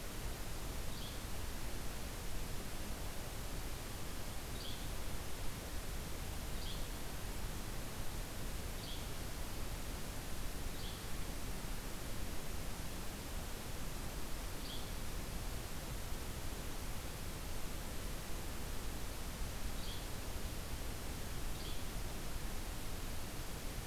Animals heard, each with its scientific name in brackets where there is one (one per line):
Yellow-bellied Flycatcher (Empidonax flaviventris)